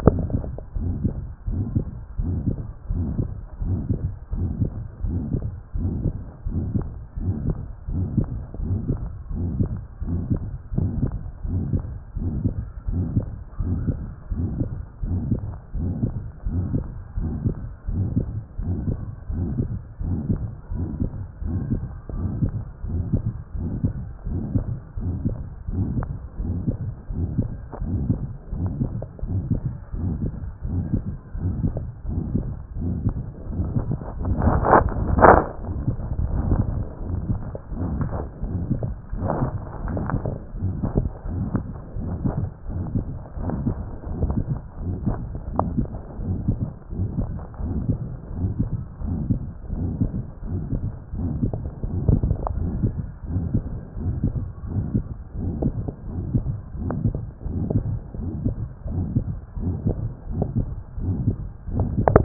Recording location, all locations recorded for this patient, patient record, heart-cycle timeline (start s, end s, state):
pulmonary valve (PV)
aortic valve (AV)+pulmonary valve (PV)+tricuspid valve (TV)+mitral valve (MV)+other location
#Age: nan
#Sex: Male
#Height: 163.0 cm
#Weight: 73.0 kg
#Pregnancy status: False
#Murmur: Present
#Murmur locations: aortic valve (AV)+mitral valve (MV)+pulmonary valve (PV)+other location+tricuspid valve (TV)
#Most audible location: mitral valve (MV)
#Systolic murmur timing: Holosystolic
#Systolic murmur shape: Decrescendo
#Systolic murmur grading: III/VI or higher
#Systolic murmur pitch: Medium
#Systolic murmur quality: Harsh
#Diastolic murmur timing: nan
#Diastolic murmur shape: nan
#Diastolic murmur grading: nan
#Diastolic murmur pitch: nan
#Diastolic murmur quality: nan
#Outcome: Abnormal
#Campaign: 2014 screening campaign
0.00	0.18	S1
0.18	0.32	systole
0.32	0.44	S2
0.44	0.84	diastole
0.84	1.00	S1
1.00	1.02	systole
1.02	1.16	S2
1.16	1.56	diastole
1.56	1.70	S1
1.70	1.74	systole
1.74	1.84	S2
1.84	2.24	diastole
2.24	2.42	S1
2.42	2.46	systole
2.46	2.56	S2
2.56	2.98	diastole
2.98	3.14	S1
3.14	3.16	systole
3.16	3.32	S2
3.32	3.66	diastole
3.66	3.80	S1
3.80	3.86	systole
3.86	3.98	S2
3.98	4.40	diastole
4.40	4.54	S1
4.54	4.60	systole
4.60	4.70	S2
4.70	5.08	diastole
5.08	5.24	S1
5.24	5.30	systole
5.30	5.42	S2
5.42	5.82	diastole
5.82	5.94	S1
5.94	6.00	systole
6.00	6.12	S2
6.12	6.54	diastole
6.54	6.70	S1
6.70	6.76	systole
6.76	6.88	S2
6.88	7.26	diastole
7.26	7.38	S1
7.38	7.44	systole
7.44	7.58	S2
7.58	7.96	diastole
7.96	8.12	S1
8.12	8.16	systole
8.16	8.26	S2
8.26	8.68	diastole
8.68	8.80	S1
8.80	8.86	systole
8.86	9.02	S2
9.02	9.38	diastole
9.38	9.54	S1
9.54	9.58	systole
9.58	9.74	S2
9.74	10.10	diastole
10.10	10.22	S1
10.22	10.26	systole
10.26	10.40	S2
10.40	10.78	diastole
10.78	10.94	S1
10.94	11.02	systole
11.02	11.12	S2
11.12	11.52	diastole
11.52	11.68	S1
11.68	11.72	systole
11.72	11.82	S2
11.82	12.20	diastole
12.20	12.34	S1
12.34	12.40	systole
12.40	12.54	S2
12.54	12.92	diastole
12.92	13.06	S1
13.06	13.12	systole
13.12	13.24	S2
13.24	13.68	diastole
13.68	13.82	S1
13.82	13.86	systole
13.86	13.96	S2
13.96	14.40	diastole
14.40	14.56	S1
14.56	14.58	systole
14.58	14.68	S2
14.68	15.08	diastole
15.08	15.24	S1
15.24	15.30	systole
15.30	15.44	S2
15.44	15.84	diastole
15.84	15.98	S1
15.98	16.02	systole
16.02	16.14	S2
16.14	16.52	diastole
16.52	16.66	S1
16.66	16.72	systole
16.72	16.86	S2
16.86	17.22	diastole
17.22	17.36	S1
17.36	17.44	systole
17.44	17.58	S2
17.58	17.96	diastole
17.96	18.12	S1
18.12	18.16	systole
18.16	18.28	S2
18.28	18.66	diastole
18.66	18.82	S1
18.82	18.86	systole
18.86	19.00	S2
19.00	19.36	diastole
19.36	19.50	S1
19.50	19.58	systole
19.58	19.72	S2
19.72	20.08	diastole
20.08	20.20	S1
20.20	20.26	systole
20.26	20.38	S2
20.38	20.78	diastole
20.78	20.90	S1
20.90	20.98	systole
20.98	21.12	S2
21.12	21.50	diastole
21.50	21.64	S1
21.64	21.70	systole
21.70	21.84	S2
21.84	22.18	diastole
22.18	22.32	S1
22.32	22.40	systole
22.40	22.52	S2
22.52	22.90	diastole
22.90	23.06	S1
23.06	23.10	systole
23.10	23.24	S2
23.24	23.62	diastole
23.62	23.74	S1
23.74	23.82	systole
23.82	23.96	S2
23.96	24.30	diastole
24.30	24.42	S1
24.42	24.54	systole
24.54	24.64	S2
24.64	25.02	diastole
25.02	25.20	S1
25.20	25.24	systole
25.24	25.38	S2
25.38	25.76	diastole
25.76	25.90	S1
25.90	25.94	systole
25.94	26.08	S2
26.08	26.48	diastole
26.48	26.60	S1
26.60	26.66	systole
26.66	26.80	S2
26.80	27.16	diastole
27.16	27.32	S1
27.32	27.36	systole
27.36	27.50	S2
27.50	27.88	diastole
27.88	28.02	S1
28.02	28.08	systole
28.08	28.18	S2
28.18	28.58	diastole
28.58	28.74	S1
28.74	28.78	systole
28.78	28.92	S2
28.92	29.32	diastole
29.32	29.46	S1
29.46	29.50	systole
29.50	29.64	S2
29.64	30.02	diastole
30.02	30.16	S1
30.16	30.22	systole
30.22	30.32	S2
30.32	30.70	diastole
30.70	30.86	S1
30.86	30.92	systole
30.92	31.04	S2
31.04	31.42	diastole
31.42	31.54	S1
31.54	31.60	systole
31.60	31.72	S2
31.72	32.14	diastole
32.14	32.30	S1
32.30	32.36	systole
32.36	32.48	S2
32.48	32.84	diastole
32.84	32.96	S1
32.96	33.04	systole
33.04	33.14	S2
33.14	33.56	diastole
33.56	33.70	S1
33.70	33.72	systole
33.72	33.86	S2
33.86	34.20	diastole
34.20	34.38	S1
34.38	34.46	systole
34.46	34.62	S2
34.62	35.06	diastole
35.06	35.22	S1
35.22	35.26	systole
35.26	35.42	S2
35.42	35.84	diastole
35.84	35.98	S1
35.98	36.02	systole
36.02	36.10	S2
36.10	36.48	diastole
36.48	36.66	S1
36.66	36.76	systole
36.76	36.88	S2
36.88	37.28	diastole
37.28	37.40	S1
37.40	37.46	systole
37.46	37.52	S2
37.52	37.90	diastole
37.90	38.08	S1
38.08	38.14	systole
38.14	38.22	S2
38.22	38.54	diastole
38.54	38.66	S1
38.66	38.70	systole
38.70	38.82	S2
38.82	39.20	diastole
39.20	39.32	S1
39.32	39.40	systole
39.40	39.52	S2
39.52	39.84	diastole
39.84	40.00	S1
40.00	40.08	systole
40.08	40.20	S2
40.20	40.64	diastole
40.64	40.76	S1
40.76	40.82	systole
40.82	40.92	S2
40.92	41.36	diastole
41.36	41.48	S1
41.48	41.52	systole
41.52	41.62	S2
41.62	42.04	diastole
42.04	42.18	S1
42.18	42.22	systole
42.22	42.36	S2
42.36	42.74	diastole
42.74	42.88	S1
42.88	42.94	systole
42.94	43.04	S2
43.04	43.46	diastole
43.46	43.58	S1
43.58	43.62	systole
43.62	43.78	S2
43.78	44.18	diastole
44.18	44.30	S1
44.30	44.34	systole
44.34	44.46	S2
44.46	44.86	diastole
44.86	45.00	S1
45.00	45.06	systole
45.06	45.18	S2
45.18	45.56	diastole
45.56	45.72	S1
45.72	45.76	systole
45.76	45.86	S2
45.86	46.26	diastole
46.26	46.40	S1
46.40	46.46	systole
46.46	46.60	S2
46.60	47.00	diastole
47.00	47.12	S1
47.12	47.16	systole
47.16	47.30	S2
47.30	47.68	diastole
47.68	47.82	S1
47.82	47.88	systole
47.88	47.98	S2
47.98	48.38	diastole
48.38	48.52	S1
48.52	48.58	systole
48.58	48.70	S2
48.70	49.10	diastole
49.10	49.22	S1
49.22	49.26	systole
49.26	49.42	S2
49.42	49.78	diastole
49.78	49.92	S1
49.92	49.98	systole
49.98	50.12	S2
50.12	50.54	diastole
50.54	50.64	S1
50.64	50.68	systole
50.68	50.80	S2
50.80	51.18	diastole
51.18	51.36	S1
51.36	51.44	systole
51.44	51.60	S2
51.60	52.02	diastole
52.02	52.20	S1
52.20	52.24	systole
52.24	52.38	S2
52.38	52.76	diastole
52.76	52.92	S1
52.92	52.96	systole
52.96	53.00	S2
53.00	53.34	diastole
53.34	53.50	S1
53.50	53.52	systole
53.52	53.64	S2
53.64	54.04	diastole
54.04	54.18	S1
54.18	54.22	systole
54.22	54.32	S2
54.32	54.72	diastole
54.72	54.86	S1
54.86	54.92	systole
54.92	55.06	S2
55.06	55.42	diastole
55.42	55.54	S1
55.54	55.60	systole
55.60	55.74	S2
55.74	56.12	diastole
56.12	56.24	S1
56.24	56.30	systole
56.30	56.46	S2
56.46	56.86	diastole
56.86	57.02	S1
57.02	57.06	systole
57.06	57.20	S2
57.20	57.54	diastole
57.54	57.70	S1
57.70	57.72	systole
57.72	57.88	S2
57.88	58.26	diastole
58.26	58.38	S1
58.38	58.42	systole
58.42	58.56	S2
58.56	58.94	diastole
58.94	59.08	S1
59.08	59.14	systole
59.14	59.28	S2
59.28	59.62	diastole
59.62	59.76	S1
59.76	59.84	systole
59.84	59.98	S2
59.98	60.38	diastole
60.38	60.48	S1
60.48	60.56	systole
60.56	60.68	S2
60.68	61.04	diastole
61.04	61.20	S1
61.20	61.24	systole
61.24	61.36	S2
61.36	61.74	diastole
61.74	61.92	S1
61.92	62.10	systole
62.10	62.24	S2